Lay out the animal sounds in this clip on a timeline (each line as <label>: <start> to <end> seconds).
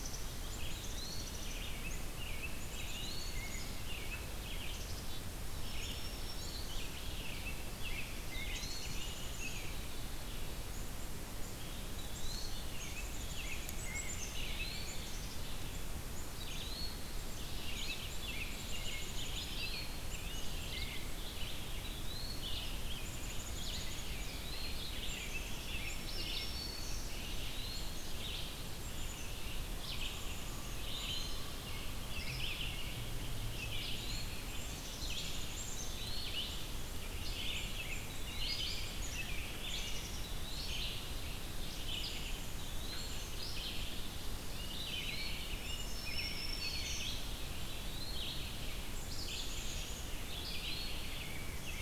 Black-capped Chickadee (Poecile atricapillus): 0.0 to 51.8 seconds
Eastern Wood-Pewee (Contopus virens): 0.5 to 1.4 seconds
American Robin (Turdus migratorius): 1.4 to 4.9 seconds
Eastern Wood-Pewee (Contopus virens): 2.7 to 3.5 seconds
Black-throated Green Warbler (Setophaga virens): 5.5 to 6.9 seconds
American Robin (Turdus migratorius): 7.1 to 9.8 seconds
Eastern Wood-Pewee (Contopus virens): 8.2 to 8.9 seconds
Eastern Wood-Pewee (Contopus virens): 11.8 to 12.6 seconds
American Robin (Turdus migratorius): 12.6 to 15.0 seconds
Red-eyed Vireo (Vireo olivaceus): 14.2 to 51.8 seconds
Eastern Wood-Pewee (Contopus virens): 14.3 to 15.0 seconds
Eastern Wood-Pewee (Contopus virens): 16.2 to 17.1 seconds
American Robin (Turdus migratorius): 17.6 to 21.2 seconds
Eastern Wood-Pewee (Contopus virens): 19.3 to 20.1 seconds
Eastern Wood-Pewee (Contopus virens): 21.8 to 22.6 seconds
Eastern Wood-Pewee (Contopus virens): 24.0 to 24.8 seconds
American Robin (Turdus migratorius): 24.2 to 26.5 seconds
Black-throated Green Warbler (Setophaga virens): 25.5 to 27.3 seconds
Eastern Wood-Pewee (Contopus virens): 30.6 to 31.7 seconds
Eastern Wood-Pewee (Contopus virens): 33.4 to 34.5 seconds
Eastern Wood-Pewee (Contopus virens): 35.7 to 36.5 seconds
Eastern Wood-Pewee (Contopus virens): 37.9 to 38.8 seconds
Eastern Wood-Pewee (Contopus virens): 39.9 to 41.0 seconds
Eastern Wood-Pewee (Contopus virens): 42.3 to 43.2 seconds
American Robin (Turdus migratorius): 44.4 to 47.4 seconds
Eastern Wood-Pewee (Contopus virens): 44.6 to 45.4 seconds
Black-throated Green Warbler (Setophaga virens): 45.5 to 47.2 seconds
Eastern Wood-Pewee (Contopus virens): 47.5 to 48.5 seconds
Eastern Wood-Pewee (Contopus virens): 50.1 to 51.1 seconds